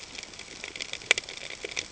{"label": "ambient", "recorder": "HydroMoth"}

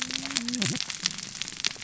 {"label": "biophony, cascading saw", "recorder": "SoundTrap 600 or HydroMoth"}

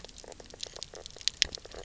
{"label": "biophony, knock croak", "recorder": "SoundTrap 300"}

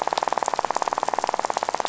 {"label": "biophony, rattle", "recorder": "SoundTrap 500"}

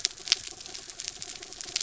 {"label": "anthrophony, mechanical", "recorder": "SoundTrap 300"}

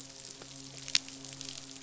{"label": "biophony, midshipman", "recorder": "SoundTrap 500"}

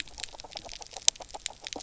{"label": "biophony, grazing", "recorder": "SoundTrap 300"}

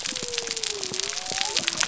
{"label": "biophony", "recorder": "SoundTrap 300"}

